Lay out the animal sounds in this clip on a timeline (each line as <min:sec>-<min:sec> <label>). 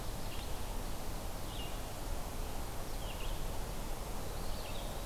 0:00.0-0:05.1 Red-eyed Vireo (Vireo olivaceus)
0:04.2-0:05.1 Eastern Wood-Pewee (Contopus virens)